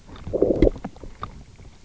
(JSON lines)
{"label": "biophony, low growl", "recorder": "SoundTrap 300"}